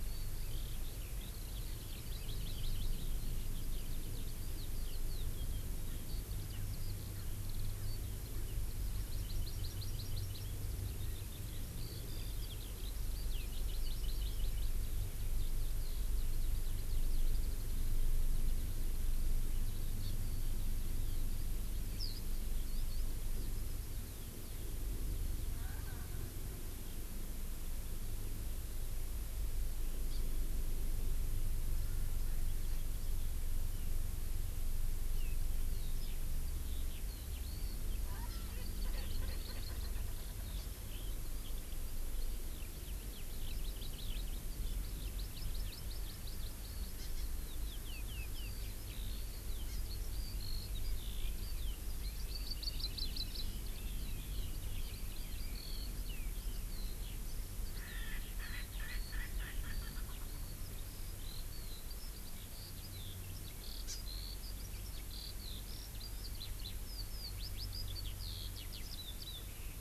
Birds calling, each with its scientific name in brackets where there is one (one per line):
Erckel's Francolin (Pternistis erckelii)
Hawaii Amakihi (Chlorodrepanis virens)
Eurasian Skylark (Alauda arvensis)